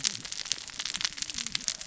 {"label": "biophony, cascading saw", "recorder": "SoundTrap 600 or HydroMoth"}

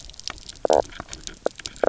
{"label": "biophony, knock croak", "recorder": "SoundTrap 300"}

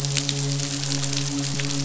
{"label": "biophony, midshipman", "recorder": "SoundTrap 500"}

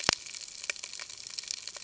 {"label": "ambient", "recorder": "HydroMoth"}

